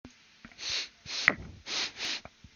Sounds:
Sniff